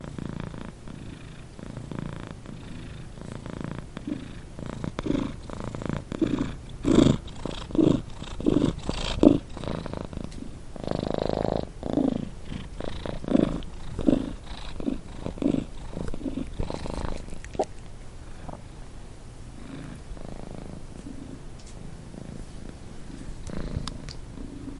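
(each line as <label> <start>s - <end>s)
A cat is purring loudly. 0.0s - 17.3s
A cat swallowing. 17.3s - 18.8s
A cat is purring. 19.9s - 24.8s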